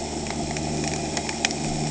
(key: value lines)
label: anthrophony, boat engine
recorder: HydroMoth